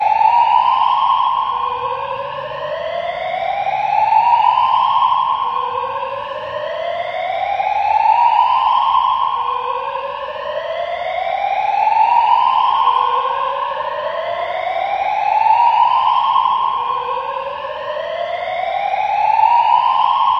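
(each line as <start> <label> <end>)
0.0 A fire alarm rings continuously with a high-pitched, reverberating tone. 20.4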